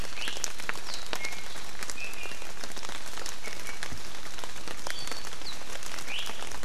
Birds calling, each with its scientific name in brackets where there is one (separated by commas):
Iiwi (Drepanis coccinea), Apapane (Himatione sanguinea)